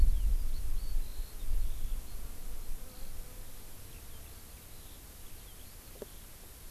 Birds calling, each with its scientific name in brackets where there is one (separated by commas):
Eurasian Skylark (Alauda arvensis)